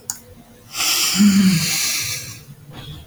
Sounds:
Sigh